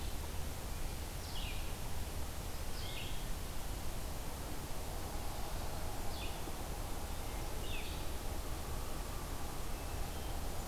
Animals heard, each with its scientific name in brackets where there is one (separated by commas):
Hermit Thrush (Catharus guttatus), Red-eyed Vireo (Vireo olivaceus)